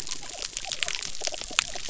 {"label": "biophony", "recorder": "SoundTrap 300"}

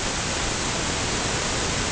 {"label": "ambient", "recorder": "HydroMoth"}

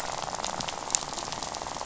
{"label": "biophony, rattle", "recorder": "SoundTrap 500"}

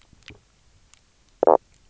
{"label": "biophony, knock croak", "recorder": "SoundTrap 300"}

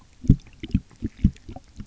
{"label": "geophony, waves", "recorder": "SoundTrap 300"}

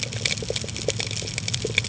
{"label": "ambient", "recorder": "HydroMoth"}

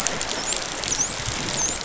{"label": "biophony, dolphin", "recorder": "SoundTrap 500"}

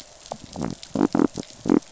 {"label": "biophony", "recorder": "SoundTrap 500"}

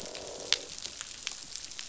{"label": "biophony, croak", "recorder": "SoundTrap 500"}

